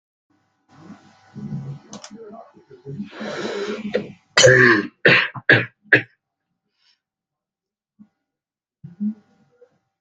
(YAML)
expert_labels:
- quality: ok
  cough_type: dry
  dyspnea: false
  wheezing: false
  stridor: false
  choking: false
  congestion: false
  nothing: true
  diagnosis: lower respiratory tract infection
  severity: mild
age: 42
gender: male
respiratory_condition: false
fever_muscle_pain: false
status: healthy